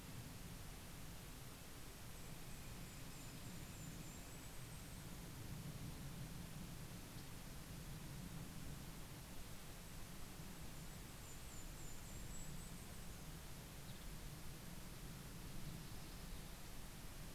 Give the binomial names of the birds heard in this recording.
Sitta canadensis, Regulus satrapa, Setophaga coronata